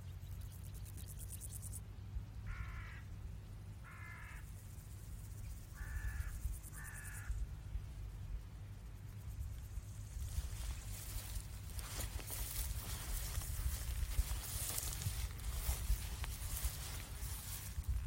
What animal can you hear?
Chorthippus biguttulus, an orthopteran